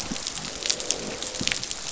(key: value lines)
label: biophony, croak
recorder: SoundTrap 500